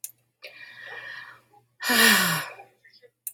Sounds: Sigh